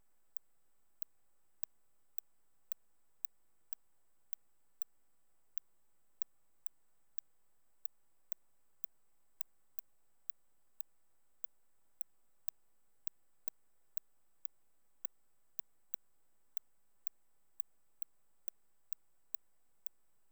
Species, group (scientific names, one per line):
Cyrtaspis scutata
Orthoptera